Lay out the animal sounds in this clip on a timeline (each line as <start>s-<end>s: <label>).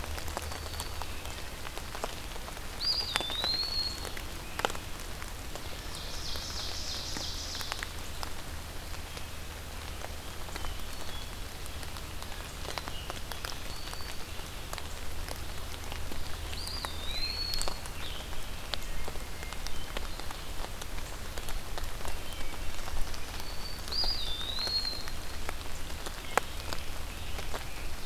2.7s-4.2s: Eastern Wood-Pewee (Contopus virens)
5.5s-7.9s: Ovenbird (Seiurus aurocapilla)
10.2s-11.6s: Hermit Thrush (Catharus guttatus)
12.9s-14.5s: Black-throated Green Warbler (Setophaga virens)
16.3s-17.9s: Eastern Wood-Pewee (Contopus virens)
17.0s-18.4s: Scarlet Tanager (Piranga olivacea)
19.1s-20.5s: Hermit Thrush (Catharus guttatus)
22.9s-24.0s: Black-throated Green Warbler (Setophaga virens)
23.9s-25.4s: Eastern Wood-Pewee (Contopus virens)
26.2s-28.0s: Scarlet Tanager (Piranga olivacea)